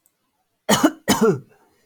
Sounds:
Cough